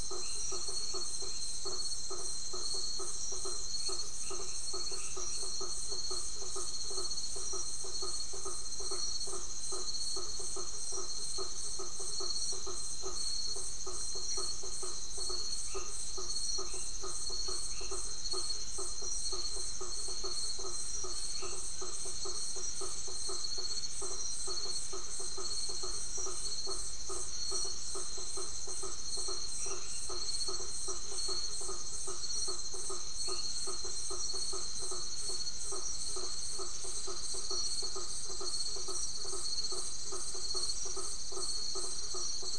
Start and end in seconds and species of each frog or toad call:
0.0	5.6	Boana albomarginata
0.0	42.5	Boana faber
0.0	42.5	Scinax alter
15.5	18.3	Boana albomarginata
21.3	22.0	Boana albomarginata
29.5	30.5	Boana albomarginata
33.1	33.6	Boana albomarginata
9:30pm

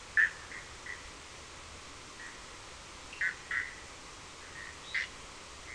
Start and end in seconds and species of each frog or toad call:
0.0	5.7	Boana bischoffi
3.0	3.4	Sphaenorhynchus surdus
2:30am

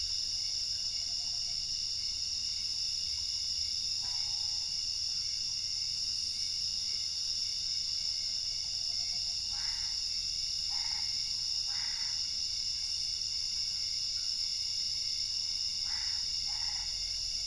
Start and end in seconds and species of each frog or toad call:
9.4	12.4	Boana albopunctata
15.7	17.1	Boana albopunctata
12:30am

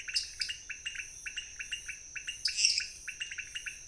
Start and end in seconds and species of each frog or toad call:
0.0	3.8	Leptodactylus podicipinus
0.1	0.7	Dendropsophus nanus
2.4	3.0	Dendropsophus minutus
~11pm

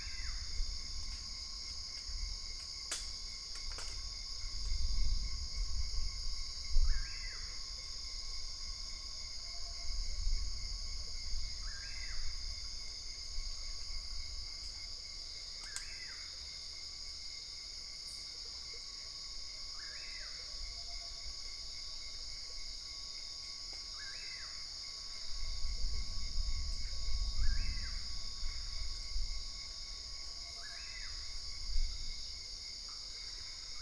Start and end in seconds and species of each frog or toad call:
none
12:30am

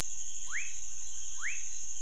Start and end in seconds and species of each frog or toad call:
0.3	2.0	Leptodactylus fuscus
10pm

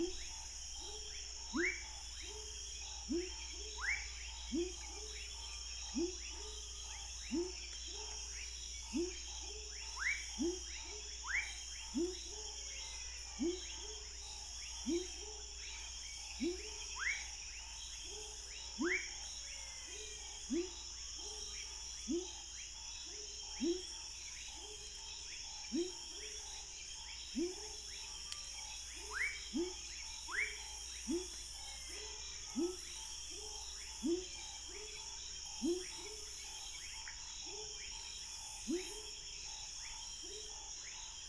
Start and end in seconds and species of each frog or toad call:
0.0	40.7	Leptodactylus labyrinthicus
0.0	41.2	Leptodactylus fuscus
12.5	13.8	Physalaemus albonotatus
19.1	20.4	Physalaemus albonotatus
31.4	32.6	Physalaemus albonotatus
37.0	37.2	Pithecopus azureus
9:30pm

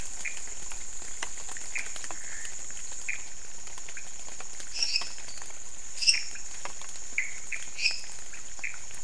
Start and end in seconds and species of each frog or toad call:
0.0	9.0	Leptodactylus podicipinus
0.1	0.5	Pithecopus azureus
1.7	2.0	Pithecopus azureus
3.0	3.3	Pithecopus azureus
4.6	8.3	Dendropsophus minutus
7.0	7.5	Pithecopus azureus
midnight

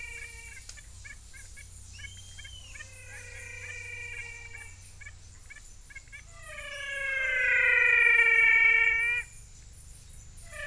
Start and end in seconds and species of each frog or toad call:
0.0	6.3	Physalaemus nattereri
0.0	10.6	Physalaemus albonotatus
6:30pm

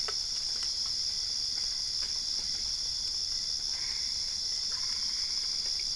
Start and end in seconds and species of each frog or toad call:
3.3	5.9	Boana albopunctata
~4am

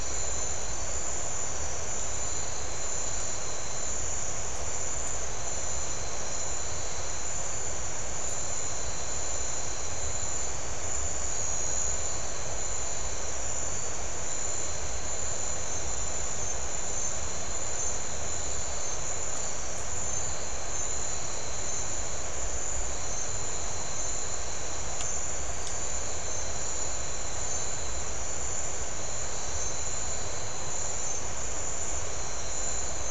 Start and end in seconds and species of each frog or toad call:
none
~7pm

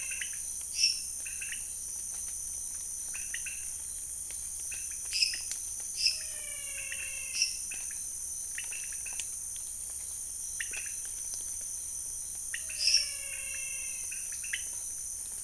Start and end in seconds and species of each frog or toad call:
0.0	0.7	Physalaemus albonotatus
0.0	15.4	Leptodactylus podicipinus
0.7	1.4	Dendropsophus minutus
5.0	7.7	Dendropsophus minutus
6.2	7.7	Physalaemus albonotatus
12.3	14.3	Physalaemus albonotatus
12.5	13.3	Dendropsophus minutus
1:30am

